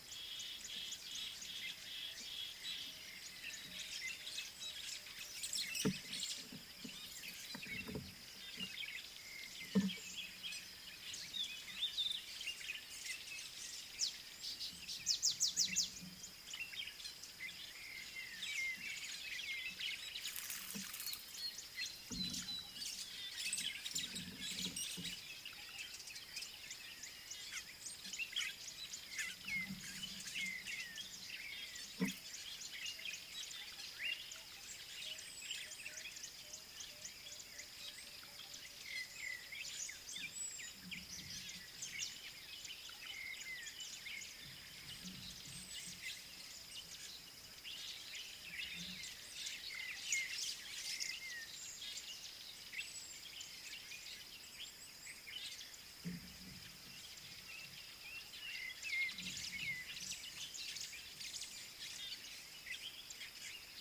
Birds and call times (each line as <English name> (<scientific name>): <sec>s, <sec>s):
White-browed Sparrow-Weaver (Plocepasser mahali): 5.5s, 60.7s
African Bare-eyed Thrush (Turdus tephronotus): 38.9s, 43.2s, 49.7s
Southern Black-Flycatcher (Melaenornis pammelaina): 40.5s, 52.9s